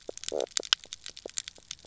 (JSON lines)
{"label": "biophony, knock croak", "recorder": "SoundTrap 300"}